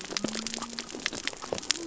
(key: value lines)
label: biophony
recorder: SoundTrap 300